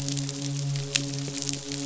{"label": "biophony, midshipman", "recorder": "SoundTrap 500"}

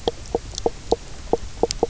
{"label": "biophony, knock croak", "recorder": "SoundTrap 300"}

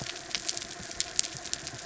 {"label": "anthrophony, mechanical", "recorder": "SoundTrap 300"}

